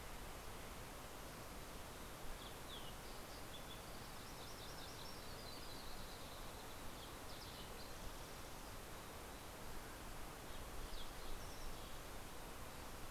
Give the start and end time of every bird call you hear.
[1.86, 13.11] Green-tailed Towhee (Pipilo chlorurus)
[3.06, 6.26] Yellow-rumped Warbler (Setophaga coronata)

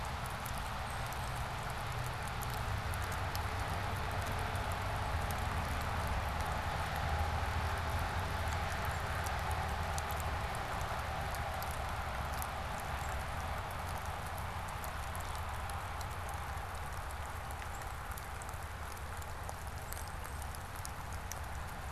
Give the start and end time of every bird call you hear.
[0.69, 1.19] unidentified bird
[8.29, 9.19] Black-capped Chickadee (Poecile atricapillus)
[12.79, 13.39] Northern Cardinal (Cardinalis cardinalis)
[17.59, 17.99] Northern Cardinal (Cardinalis cardinalis)
[19.79, 20.59] unidentified bird

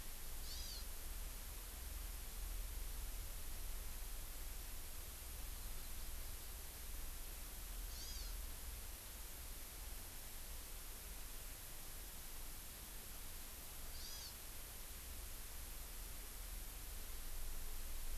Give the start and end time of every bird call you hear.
[0.45, 0.85] Hawaii Amakihi (Chlorodrepanis virens)
[7.85, 8.35] Hawaii Amakihi (Chlorodrepanis virens)
[13.95, 14.25] Hawaii Amakihi (Chlorodrepanis virens)

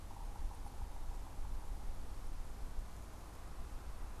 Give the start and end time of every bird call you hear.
[0.00, 2.00] Yellow-bellied Sapsucker (Sphyrapicus varius)

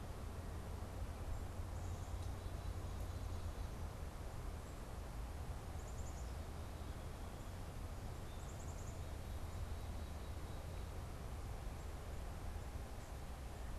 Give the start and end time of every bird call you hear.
[5.53, 9.12] Black-capped Chickadee (Poecile atricapillus)

